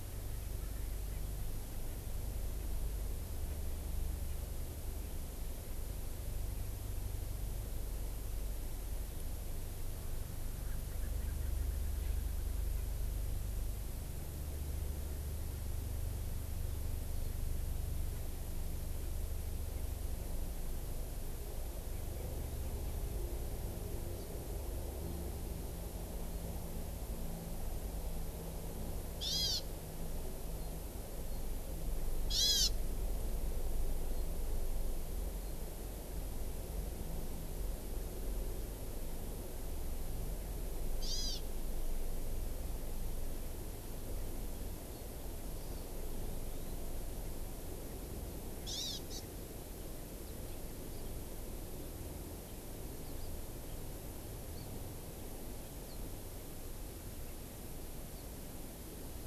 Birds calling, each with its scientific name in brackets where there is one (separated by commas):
Erckel's Francolin (Pternistis erckelii), Hawaii Amakihi (Chlorodrepanis virens)